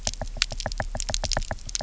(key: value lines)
label: biophony, knock
recorder: SoundTrap 300